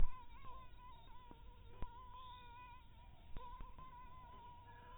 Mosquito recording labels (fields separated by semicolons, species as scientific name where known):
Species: mosquito; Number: one; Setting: cup